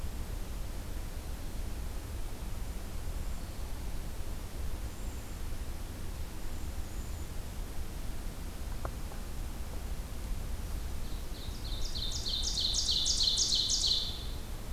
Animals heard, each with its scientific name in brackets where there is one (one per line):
Ovenbird (Seiurus aurocapilla)